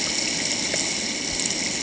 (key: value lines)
label: ambient
recorder: HydroMoth